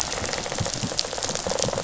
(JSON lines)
{"label": "biophony, rattle response", "recorder": "SoundTrap 500"}